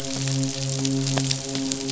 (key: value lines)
label: biophony, midshipman
recorder: SoundTrap 500